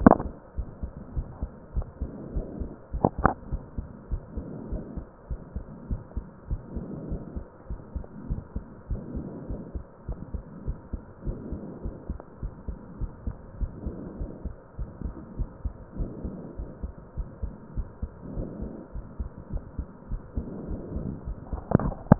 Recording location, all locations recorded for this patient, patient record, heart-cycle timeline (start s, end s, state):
pulmonary valve (PV)
aortic valve (AV)+pulmonary valve (PV)+tricuspid valve (TV)+mitral valve (MV)
#Age: nan
#Sex: Female
#Height: nan
#Weight: nan
#Pregnancy status: True
#Murmur: Absent
#Murmur locations: nan
#Most audible location: nan
#Systolic murmur timing: nan
#Systolic murmur shape: nan
#Systolic murmur grading: nan
#Systolic murmur pitch: nan
#Systolic murmur quality: nan
#Diastolic murmur timing: nan
#Diastolic murmur shape: nan
#Diastolic murmur grading: nan
#Diastolic murmur pitch: nan
#Diastolic murmur quality: nan
#Outcome: Normal
#Campaign: 2015 screening campaign
0.00	5.26	unannotated
5.26	5.40	S1
5.40	5.54	systole
5.54	5.64	S2
5.64	5.90	diastole
5.90	6.02	S1
6.02	6.15	systole
6.15	6.24	S2
6.24	6.49	diastole
6.49	6.62	S1
6.62	6.74	systole
6.74	6.88	S2
6.88	7.10	diastole
7.10	7.22	S1
7.22	7.36	systole
7.36	7.44	S2
7.44	7.70	diastole
7.70	7.80	S1
7.80	7.94	systole
7.94	8.04	S2
8.04	8.30	diastole
8.30	8.40	S1
8.40	8.54	systole
8.54	8.64	S2
8.64	8.90	diastole
8.90	9.02	S1
9.02	9.14	systole
9.14	9.26	S2
9.26	9.50	diastole
9.50	9.62	S1
9.62	9.74	systole
9.74	9.84	S2
9.84	10.08	diastole
10.08	10.20	S1
10.20	10.33	systole
10.33	10.44	S2
10.44	10.66	diastole
10.66	10.78	S1
10.78	10.92	systole
10.92	11.02	S2
11.02	11.26	diastole
11.26	11.38	S1
11.38	11.52	systole
11.52	11.62	S2
11.62	11.84	diastole
11.84	11.96	S1
11.96	12.10	systole
12.10	12.18	S2
12.18	12.44	diastole
12.44	12.54	S1
12.54	12.68	systole
12.68	12.78	S2
12.78	13.00	diastole
13.00	13.12	S1
13.12	13.26	systole
13.26	13.36	S2
13.36	13.60	diastole
13.60	13.72	S1
13.72	13.86	systole
13.86	13.96	S2
13.96	14.22	diastole
14.22	14.32	S1
14.32	14.46	systole
14.46	14.54	S2
14.54	14.80	diastole
14.80	14.90	S1
14.90	15.04	systole
15.04	15.14	S2
15.14	15.38	diastole
15.38	15.48	S1
15.48	15.64	systole
15.64	15.74	S2
15.74	15.98	diastole
15.98	16.10	S1
16.10	16.24	systole
16.24	16.36	S2
16.36	16.59	diastole
16.59	16.70	S1
16.70	16.82	systole
16.82	16.92	S2
16.92	17.17	diastole
17.17	17.28	S1
17.28	17.41	systole
17.41	17.52	S2
17.52	17.76	diastole
17.76	17.88	S1
17.88	18.00	systole
18.00	18.10	S2
18.10	18.36	diastole
18.36	18.48	S1
18.48	18.59	systole
18.59	18.72	S2
18.72	18.96	diastole
18.96	19.06	S1
19.06	19.20	systole
19.20	19.30	S2
19.30	19.52	diastole
19.52	19.64	S1
19.64	19.77	systole
19.77	19.88	S2
19.88	22.19	unannotated